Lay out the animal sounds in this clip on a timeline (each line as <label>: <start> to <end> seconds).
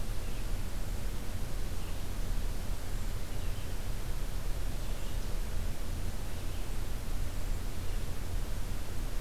Red-eyed Vireo (Vireo olivaceus): 0.0 to 8.2 seconds
Hermit Thrush (Catharus guttatus): 2.6 to 3.1 seconds
Hermit Thrush (Catharus guttatus): 4.7 to 5.1 seconds
Hermit Thrush (Catharus guttatus): 7.3 to 7.7 seconds